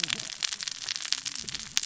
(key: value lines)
label: biophony, cascading saw
recorder: SoundTrap 600 or HydroMoth